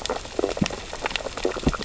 {"label": "biophony, sea urchins (Echinidae)", "recorder": "SoundTrap 600 or HydroMoth"}
{"label": "biophony, stridulation", "recorder": "SoundTrap 600 or HydroMoth"}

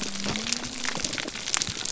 {"label": "biophony", "recorder": "SoundTrap 300"}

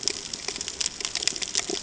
{"label": "ambient", "recorder": "HydroMoth"}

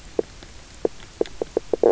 {"label": "biophony, knock croak", "recorder": "SoundTrap 300"}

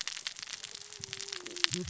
{"label": "biophony, cascading saw", "recorder": "SoundTrap 600 or HydroMoth"}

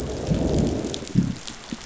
{"label": "biophony, growl", "recorder": "SoundTrap 500"}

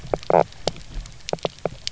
{"label": "biophony", "recorder": "SoundTrap 300"}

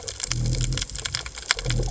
{"label": "biophony", "recorder": "HydroMoth"}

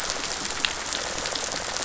{"label": "biophony", "recorder": "SoundTrap 500"}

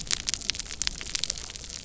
{"label": "biophony", "recorder": "SoundTrap 300"}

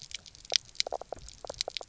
{"label": "biophony, knock croak", "recorder": "SoundTrap 300"}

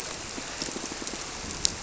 {"label": "biophony, squirrelfish (Holocentrus)", "recorder": "SoundTrap 300"}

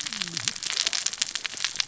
{"label": "biophony, cascading saw", "recorder": "SoundTrap 600 or HydroMoth"}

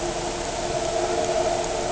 {"label": "anthrophony, boat engine", "recorder": "HydroMoth"}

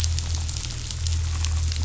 {"label": "anthrophony, boat engine", "recorder": "SoundTrap 500"}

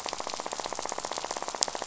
{"label": "biophony, rattle", "recorder": "SoundTrap 500"}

